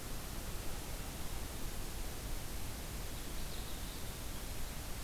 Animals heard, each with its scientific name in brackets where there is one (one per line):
Common Yellowthroat (Geothlypis trichas)